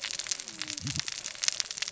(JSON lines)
{"label": "biophony, cascading saw", "recorder": "SoundTrap 600 or HydroMoth"}